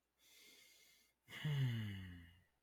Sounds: Sigh